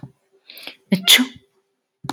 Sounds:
Sneeze